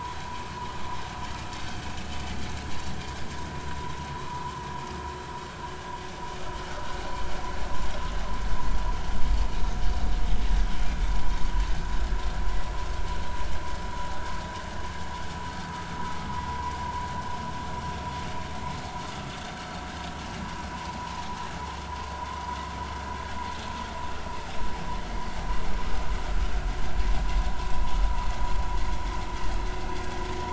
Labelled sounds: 4.2	4.4	vessel noise, 0.90 to 1.2 kHz
21.0	21.2	vessel noise, 0.83 to 1.1 kHz

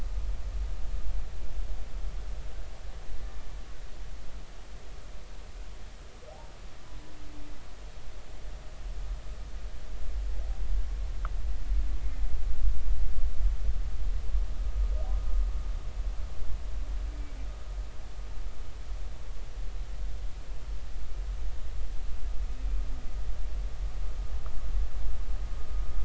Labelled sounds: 17.1	17.4	humpback whale, 2.2 to 2.4 kHz

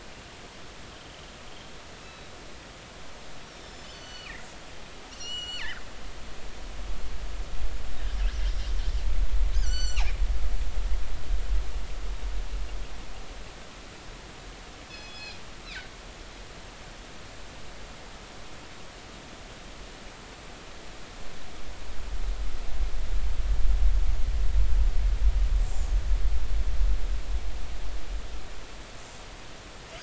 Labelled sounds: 0.9	1.2	killer whale, northern resident, G clan, 2.9 to 3.2 kHz
2.0	2.3	killer whale, northern resident, G clan, 3.8 to 4.0 kHz
3.6	4.3	killer whale, northern resident, G clan, 2.8 to 7.2 kHz
5.1	5.8	killer whale, northern resident, G clan, GG subclan, call N23ii, 1.3 to 7.5 kHz
9.6	10.1	killer whale, northern resident, G clan, GG subclan, call N23ii, 1.4 to 7.6 kHz
14.9	15.4	killer whale, northern resident, G clan, call N24i, 2.4 to 5.2 kHz
25.6	25.9	killer whale, northern resident, 6.9 to 7.7 kHz

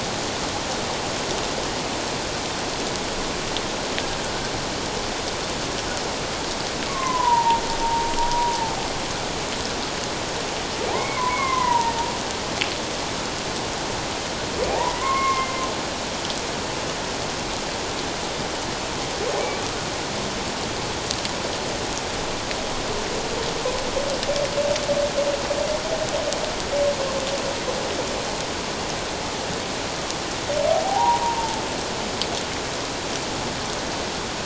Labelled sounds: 6.9	8.1	humpback whale, 0.78 to 1.2 kHz
10.9	12.0	humpback whale, 0.88 to 2.3 kHz
14.7	15.5	humpback whale, 0.78 to 2.2 kHz
30.8	31.6	humpback whale, 0.78 to 1.0 kHz

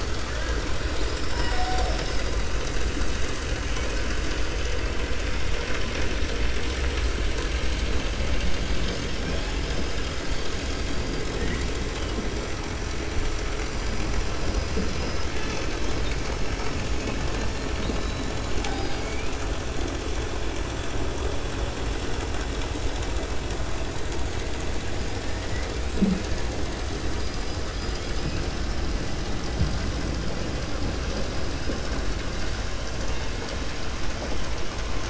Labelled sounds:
25.3	25.7	killer whale, 1.6 to 2.9 kHz

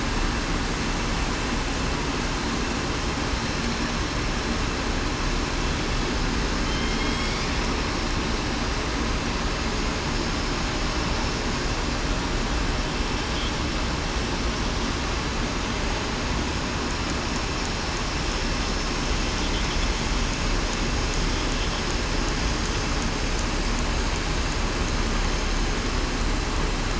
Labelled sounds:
6.6	7.4	killer whale, southern resident, 3.0 to 3.4 kHz

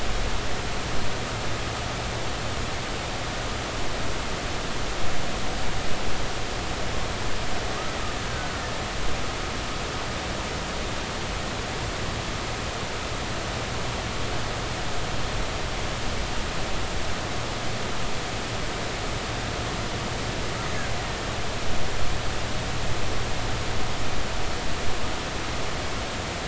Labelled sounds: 8.3	8.6	killer whale, Bigg's (transient), 1.4 to 1.6 kHz

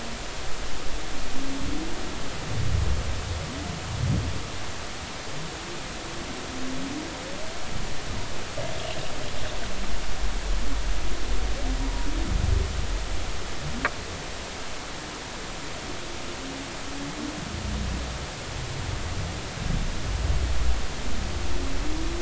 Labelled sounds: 11.8	12.1	humpback whale, 0.93 to 0.99 kHz

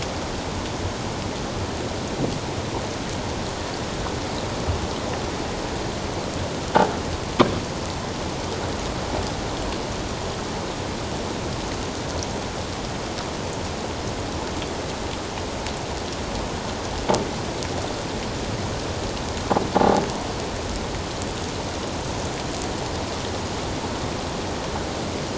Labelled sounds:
19.8	20.0	croaking sound likely from a nearby submerged object, 0.78 to 0.91 kHz

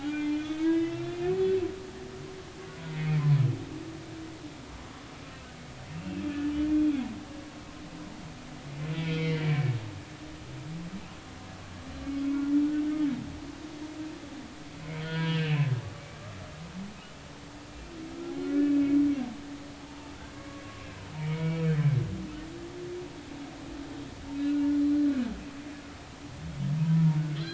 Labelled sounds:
0.0	1.3	humpback whale, 1.3 to 3.9 kHz
2.9	3.3	humpback whale, 2.0 to 2.5 kHz
5.9	6.2	humpback whale, 2.5 to 2.8 kHz
9.0	9.8	humpback whale, 2.0 to 3.3 kHz
15.0	16.2	humpback whale, 0.93 to 3.3 kHz
18.3	19.0	humpback whale, 1.4 to 2.6 kHz
19.8	20.6	humpback whale, 0.80 to 1.2 kHz
21.1	21.6	humpback whale, 0.90 to 2.4 kHz
24.3	25.1	humpback whale, 3.8 to 4.2 kHz
26.9	27.2	humpback whale, 0.90 to 1.0 kHz

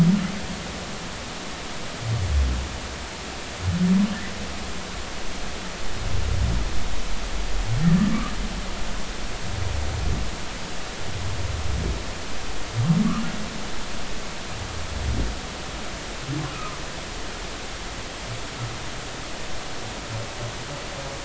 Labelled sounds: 8.0	8.3	humpback whale, 1.1 to 1.3 kHz
16.5	16.8	humpback whale, 1.1 to 1.4 kHz

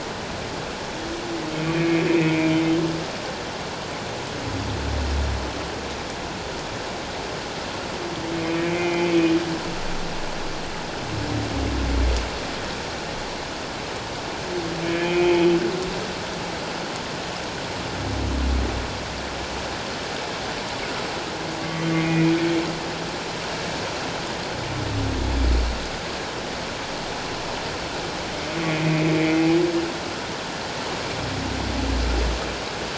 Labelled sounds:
1.6	2.5	humpback whale, 1.9 to 2.6 kHz
8.4	9.3	humpback whale, 2.0 to 2.6 kHz
14.8	15.4	humpback whale, 2.2 to 2.6 kHz
21.6	22.4	humpback whale, 1.1 to 2.5 kHz
28.7	29.5	humpback whale, 2.0 to 2.6 kHz

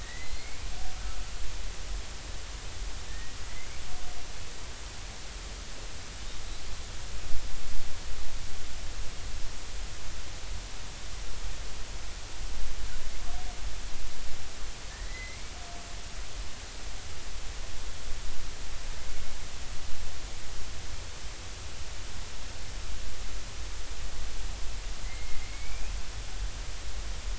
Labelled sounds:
0.0	0.6	killer whale, Bigg's (transient), 1.8 to 4.4 kHz
3.1	3.4	killer whale, Bigg's (transient), 1.7 to 2.0 kHz
14.9	15.6	killer whale, Bigg's (transient), 1.7 to 2.3 kHz
25.0	25.9	killer whale, Bigg's (transient), 2.0 to 2.7 kHz

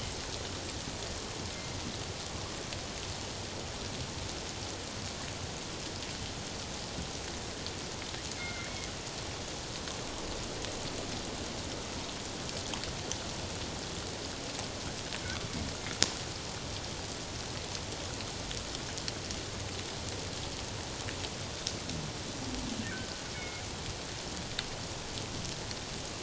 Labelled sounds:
8.4	8.9	killer whale, northern resident, G clan, 1.3 to 2.2 kHz
23.3	23.6	killer whale, northern resident, G clan, 2.1 to 2.3 kHz

